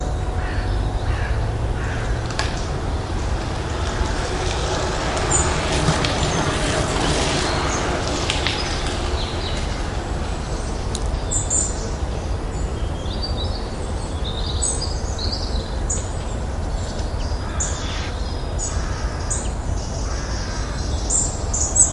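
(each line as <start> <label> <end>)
0.0 General background sounds of a calm agricultural area. 21.9
0.1 A crow is cawing. 2.8
4.0 A car passes by in the distance. 9.4
5.2 A bird chirping in the distance. 21.9
17.2 A crow cawing. 21.9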